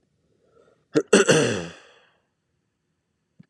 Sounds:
Throat clearing